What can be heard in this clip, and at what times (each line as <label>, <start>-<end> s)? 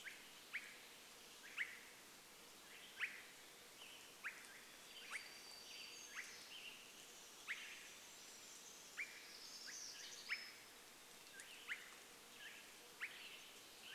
Swainson's Thrush call, 0-14 s
Western Tanager song, 2-8 s
warbler song, 4-12 s
Western Tanager song, 12-14 s